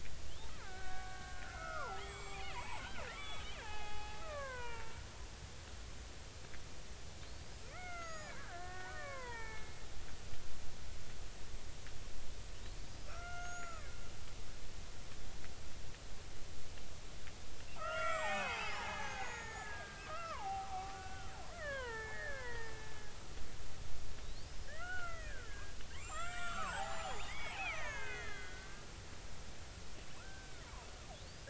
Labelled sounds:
0.3	5.0	killer whale, Bigg's (transient), 0.80 to 7.8 kHz
7.3	9.9	killer whale, Bigg's (transient), 0.83 to 6.9 kHz
12.9	13.9	killer whale, Bigg's (transient), 1.1 to 7.0 kHz
17.7	22.8	killer whale, Bigg's (transient), 0.80 to 8.0 kHz
24.2	28.8	killer whale, Bigg's (transient), 0.80 to 8.0 kHz
30.2	30.6	killer whale, Bigg's (transient), 1.2 to 1.6 kHz

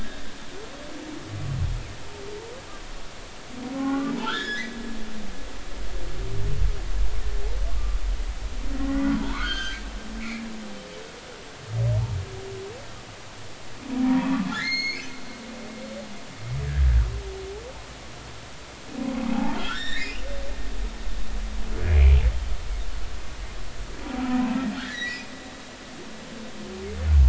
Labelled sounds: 3.7	4.7	humpback whale, 0.80 to 3.9 kHz
8.8	9.8	humpback whale, 0.86 to 6.4 kHz
10.2	10.4	humpback whale, 2.0 to 2.7 kHz
14.0	15.1	humpback whale, 0.90 to 6.6 kHz
19.3	20.2	humpback whale, 0.80 to 5.6 kHz
21.8	22.2	humpback whale, 2.0 to 2.5 kHz
24.8	25.3	humpback whale, 1.6 to 6.0 kHz

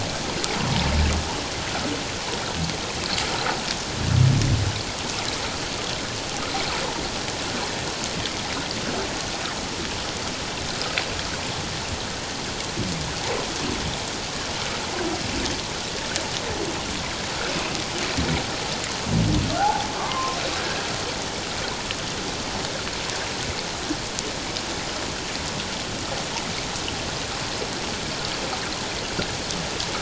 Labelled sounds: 19.6	20.4	humpback whale, 0.78 to 1.2 kHz

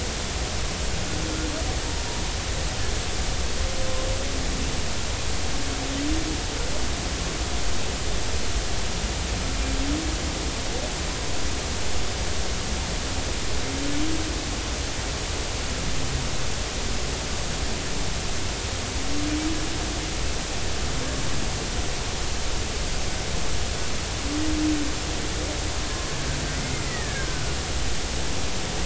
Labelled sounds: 26.5	27.5	killer whale, Bigg's (transient), 1.4 to 2.2 kHz

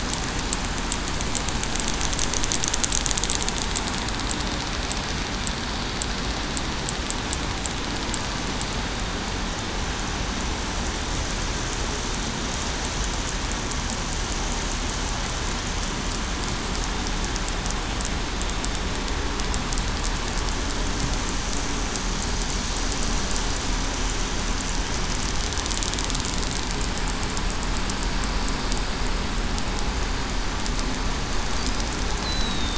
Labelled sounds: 32.2	32.7	killer whale, southern resident, 3.6 to 4.1 kHz

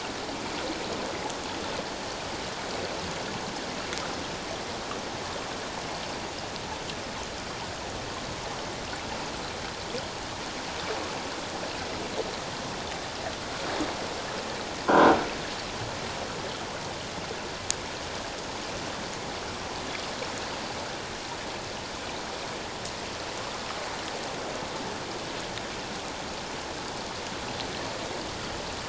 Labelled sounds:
14.9	15.2	croaking sound likely from a nearby submerged object, 1.3 to 1.7 kHz

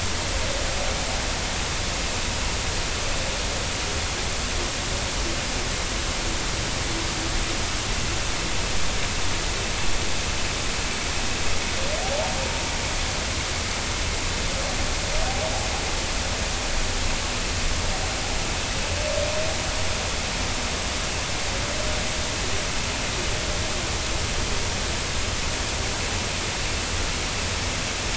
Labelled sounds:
12.0	12.3	humpback whale, 0.80 to 0.96 kHz

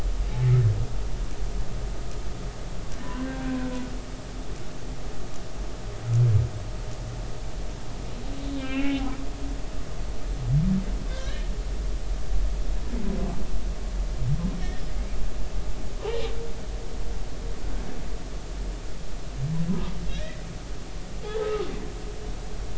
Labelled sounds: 3.0	3.6	humpback whale, 0.93 to 1.7 kHz
8.5	9.0	humpback whale, 1.3 to 3.1 kHz
11.1	11.5	humpback whale, 1.5 to 1.9 kHz
20.1	20.4	humpback whale, 1.6 to 4.0 kHz
21.4	21.7	humpback whale, 1.2 to 1.3 kHz

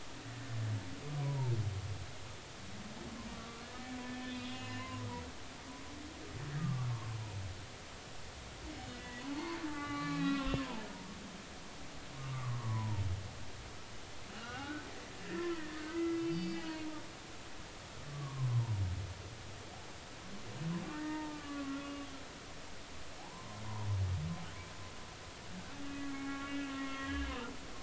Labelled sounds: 1.2	1.5	humpback whale, 0.83 to 1.0 kHz
3.3	5.1	humpback whale, 0.96 to 2.9 kHz
6.6	6.9	humpback whale, 1.0 to 1.3 kHz
8.9	10.9	humpback whale, 0.80 to 4.6 kHz
12.3	13.0	humpback whale, 0.83 to 1.3 kHz
14.3	16.9	humpback whale, 0.93 to 5.0 kHz
18.1	18.7	humpback whale, 0.86 to 1.2 kHz
20.9	22.1	humpback whale, 0.83 to 2.0 kHz
23.2	23.6	humpback whale, 0.80 to 1.1 kHz
25.8	27.3	humpback whale, 0.80 to 3.3 kHz

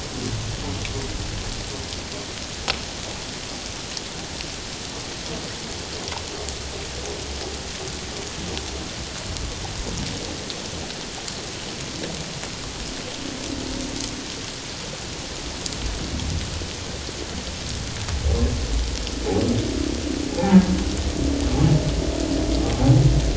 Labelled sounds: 20.3	20.6	humpback whale, 0.78 to 1.0 kHz

